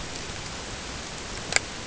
{"label": "ambient", "recorder": "HydroMoth"}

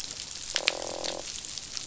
{"label": "biophony, croak", "recorder": "SoundTrap 500"}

